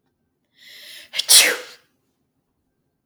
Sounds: Sneeze